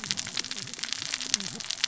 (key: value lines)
label: biophony, cascading saw
recorder: SoundTrap 600 or HydroMoth